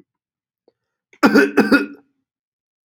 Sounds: Cough